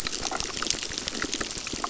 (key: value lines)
label: biophony, crackle
recorder: SoundTrap 600